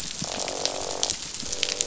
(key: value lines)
label: biophony, croak
recorder: SoundTrap 500